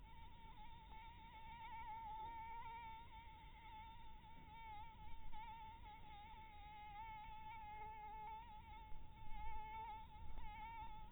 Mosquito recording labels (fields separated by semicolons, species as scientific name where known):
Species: Anopheles dirus; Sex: female; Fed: blood-fed; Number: one; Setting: cup